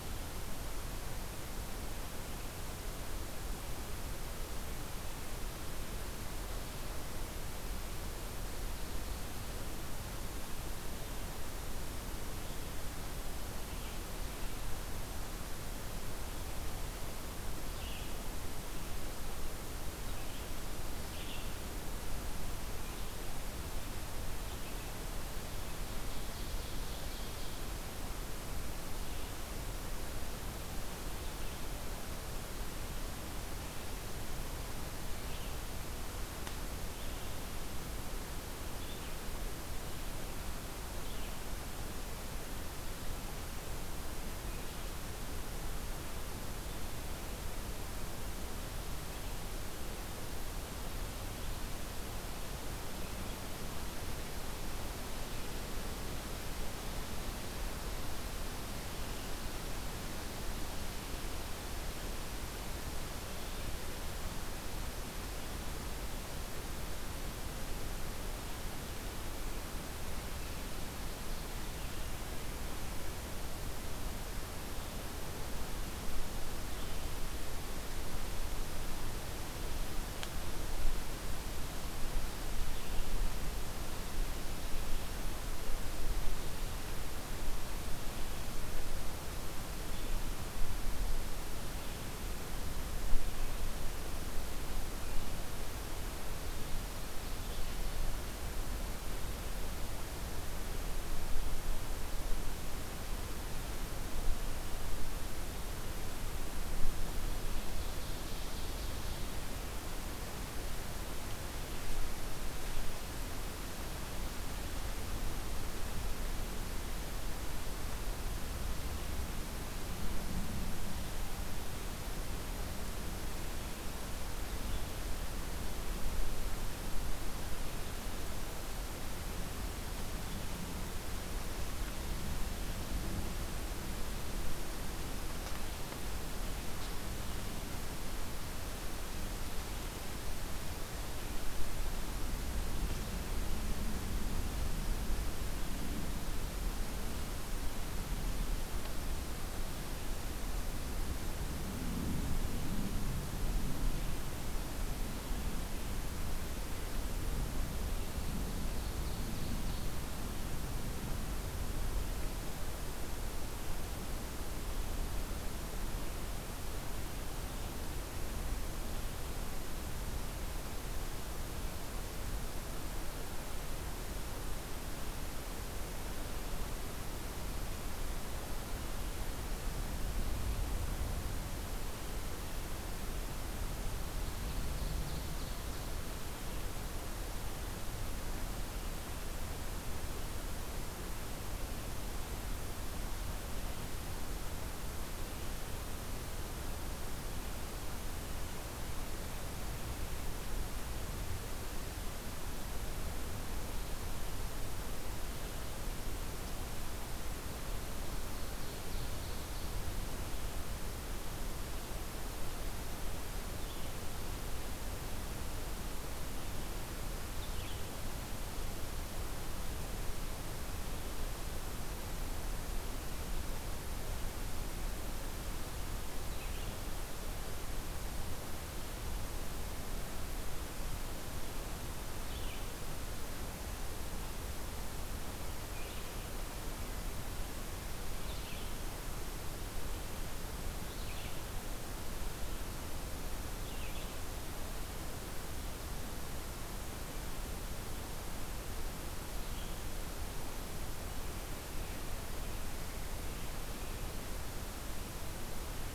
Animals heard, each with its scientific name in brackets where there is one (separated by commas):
Red-eyed Vireo (Vireo olivaceus), Ovenbird (Seiurus aurocapilla)